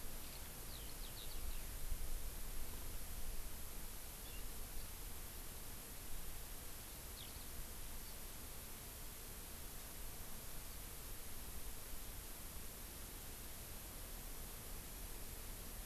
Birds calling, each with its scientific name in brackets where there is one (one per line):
Eurasian Skylark (Alauda arvensis)
Hawaii Amakihi (Chlorodrepanis virens)